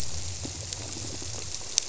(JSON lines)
{"label": "biophony", "recorder": "SoundTrap 300"}